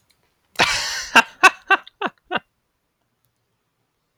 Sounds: Laughter